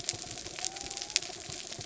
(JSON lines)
{"label": "anthrophony, mechanical", "recorder": "SoundTrap 300"}
{"label": "biophony", "recorder": "SoundTrap 300"}